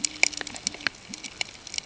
{"label": "ambient", "recorder": "HydroMoth"}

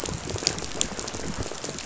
{"label": "biophony, rattle", "recorder": "SoundTrap 500"}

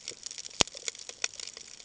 {"label": "ambient", "recorder": "HydroMoth"}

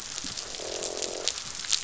{"label": "biophony, croak", "recorder": "SoundTrap 500"}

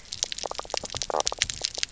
{"label": "biophony, knock croak", "recorder": "SoundTrap 300"}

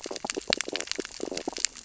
{"label": "biophony, stridulation", "recorder": "SoundTrap 600 or HydroMoth"}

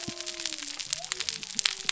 {"label": "biophony", "recorder": "SoundTrap 300"}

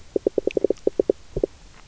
{"label": "biophony, knock", "recorder": "SoundTrap 300"}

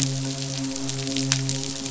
{"label": "biophony, midshipman", "recorder": "SoundTrap 500"}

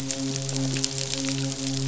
{"label": "biophony, midshipman", "recorder": "SoundTrap 500"}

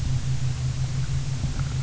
{"label": "anthrophony, boat engine", "recorder": "SoundTrap 300"}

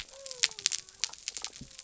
{"label": "biophony", "recorder": "SoundTrap 300"}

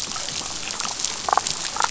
{"label": "biophony, damselfish", "recorder": "SoundTrap 500"}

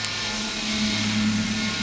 {"label": "anthrophony, boat engine", "recorder": "SoundTrap 500"}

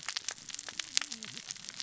{"label": "biophony, cascading saw", "recorder": "SoundTrap 600 or HydroMoth"}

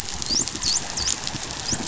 {"label": "biophony, dolphin", "recorder": "SoundTrap 500"}
{"label": "biophony", "recorder": "SoundTrap 500"}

